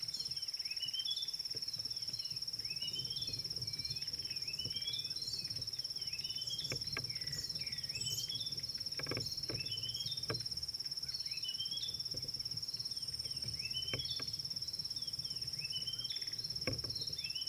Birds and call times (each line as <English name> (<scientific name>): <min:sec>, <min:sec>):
Red-backed Scrub-Robin (Cercotrichas leucophrys): 0:03.0, 0:08.2, 0:11.6, 0:15.9
Klaas's Cuckoo (Chrysococcyx klaas): 0:03.9